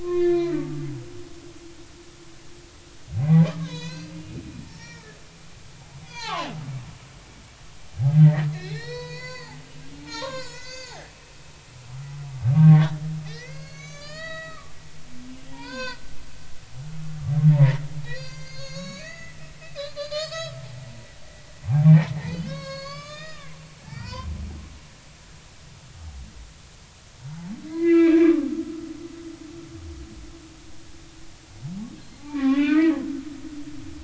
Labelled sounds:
0.0	0.9	humpback whale, 0.99 to 4.2 kHz
3.2	4.4	humpback whale, 0.86 to 6.8 kHz
4.7	5.2	humpback whale, 0.83 to 5.7 kHz
6.0	6.5	humpback whale, 0.80 to 4.9 kHz
8.1	9.6	humpback whale, 0.80 to 7.1 kHz
10.0	11.0	humpback whale, 0.83 to 7.0 kHz
12.5	13.0	humpback whale, 1.1 to 1.9 kHz
13.3	14.8	humpback whale, 1.1 to 7.3 kHz
15.3	16.0	humpback whale, 0.80 to 5.2 kHz
17.5	19.4	humpback whale, 0.83 to 7.3 kHz
19.8	20.6	humpback whale, 1.1 to 5.3 kHz
21.6	23.6	humpback whale, 0.80 to 7.2 kHz
23.8	24.3	humpback whale, 0.90 to 5.2 kHz
27.7	28.5	humpback whale, 1.1 to 4.1 kHz
32.0	33.0	humpback whale, 0.99 to 4.3 kHz

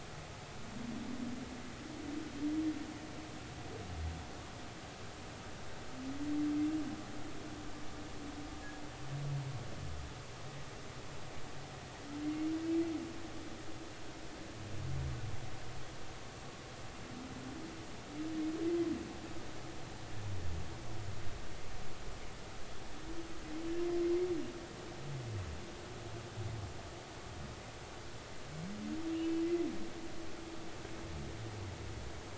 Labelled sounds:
12.2	12.5	humpback whale, 2.1 to 2.2 kHz

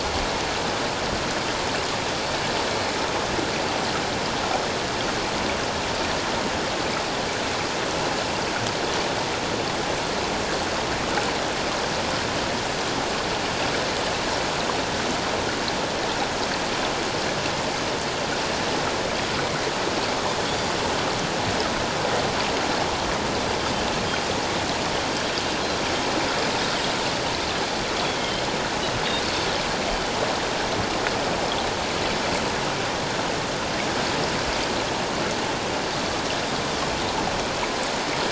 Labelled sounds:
28.2	28.4	Pacific white-sided dolphin, 3.0 to 3.3 kHz

